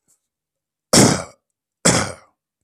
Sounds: Cough